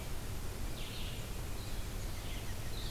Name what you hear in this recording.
Blue-headed Vireo, Red-eyed Vireo